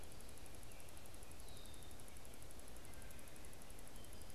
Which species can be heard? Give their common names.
Red-winged Blackbird